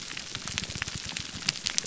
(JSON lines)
{"label": "biophony, grouper groan", "recorder": "SoundTrap 300"}